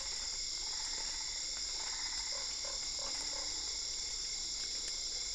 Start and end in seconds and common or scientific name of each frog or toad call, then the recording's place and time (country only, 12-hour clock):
0.5	3.7	Boana albopunctata
2.4	3.7	Usina tree frog
Brazil, 9:00pm